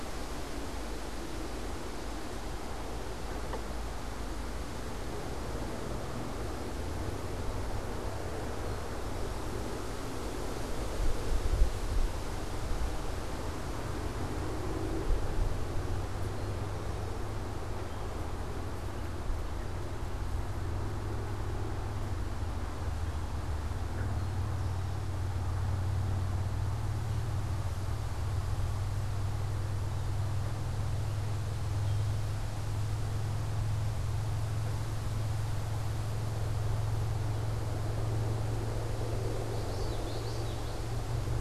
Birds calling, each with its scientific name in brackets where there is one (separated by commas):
unidentified bird, Common Yellowthroat (Geothlypis trichas), Eastern Towhee (Pipilo erythrophthalmus)